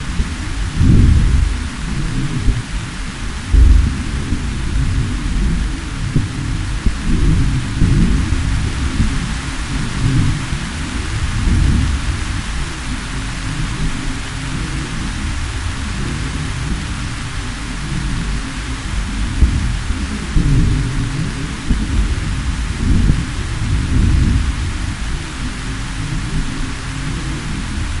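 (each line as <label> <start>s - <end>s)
Distant thunder rumbles faintly. 0.0s - 12.2s
Rain falling steadily in the background. 0.0s - 28.0s
Distant thunder rumbles faintly. 19.3s - 24.8s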